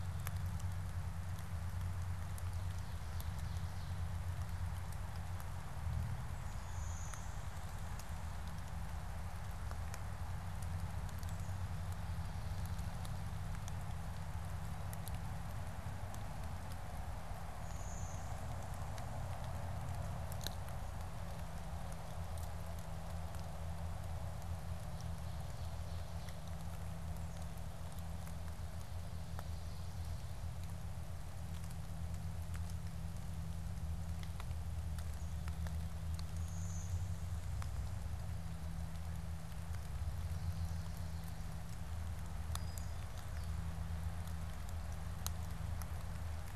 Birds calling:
Ovenbird (Seiurus aurocapilla), Blue-winged Warbler (Vermivora cyanoptera), Brown-headed Cowbird (Molothrus ater)

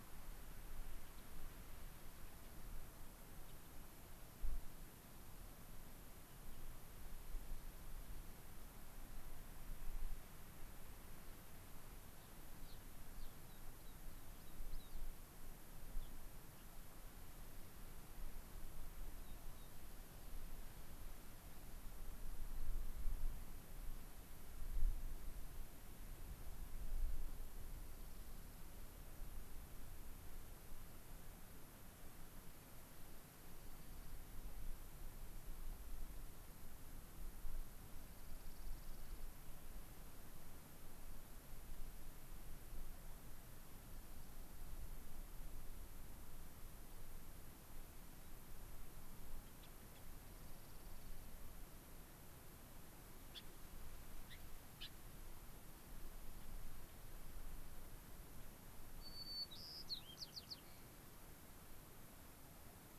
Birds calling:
American Pipit (Anthus rubescens), Dark-eyed Junco (Junco hyemalis), Gray-crowned Rosy-Finch (Leucosticte tephrocotis), White-crowned Sparrow (Zonotrichia leucophrys)

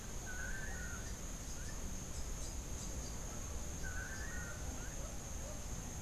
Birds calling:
Long-tailed Manakin (Chiroxiphia linearis), Rufous-capped Warbler (Basileuterus rufifrons)

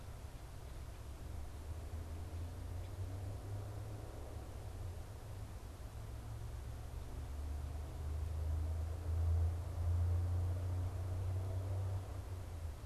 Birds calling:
Red-winged Blackbird (Agelaius phoeniceus)

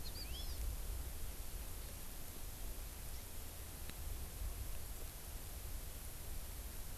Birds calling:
Hawaii Amakihi (Chlorodrepanis virens)

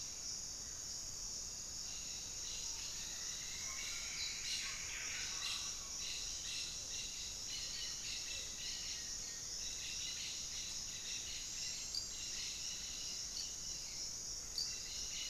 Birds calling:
Plumbeous Antbird (Myrmelastes hyperythrus), Mealy Parrot (Amazona farinosa), Buff-breasted Wren (Cantorchilus leucotis), Black-faced Antthrush (Formicarius analis), Hauxwell's Thrush (Turdus hauxwelli)

